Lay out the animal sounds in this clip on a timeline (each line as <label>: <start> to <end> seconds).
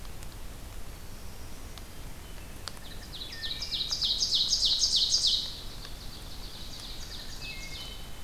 Black-throated Blue Warbler (Setophaga caerulescens): 0.7 to 2.0 seconds
Wood Thrush (Hylocichla mustelina): 1.9 to 4.0 seconds
Ovenbird (Seiurus aurocapilla): 2.7 to 8.1 seconds
Wood Thrush (Hylocichla mustelina): 6.9 to 8.2 seconds